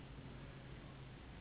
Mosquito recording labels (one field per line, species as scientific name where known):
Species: Anopheles gambiae s.s.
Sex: female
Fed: unfed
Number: one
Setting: insect culture